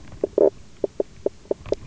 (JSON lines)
{"label": "biophony, knock croak", "recorder": "SoundTrap 300"}